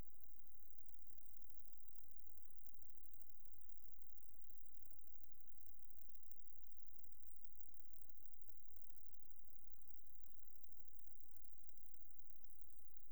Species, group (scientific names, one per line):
Conocephalus fuscus
Orthoptera